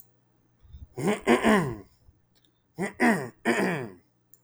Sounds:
Throat clearing